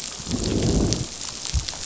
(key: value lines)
label: biophony, growl
recorder: SoundTrap 500